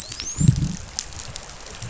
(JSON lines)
{"label": "biophony, dolphin", "recorder": "SoundTrap 500"}